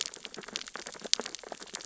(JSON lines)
{"label": "biophony, sea urchins (Echinidae)", "recorder": "SoundTrap 600 or HydroMoth"}